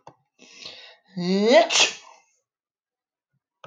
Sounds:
Sneeze